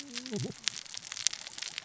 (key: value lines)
label: biophony, cascading saw
recorder: SoundTrap 600 or HydroMoth